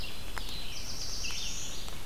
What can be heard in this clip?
Red-eyed Vireo, Black-throated Blue Warbler